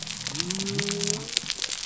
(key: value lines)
label: biophony
recorder: SoundTrap 300